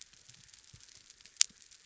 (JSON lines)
{"label": "biophony", "recorder": "SoundTrap 300"}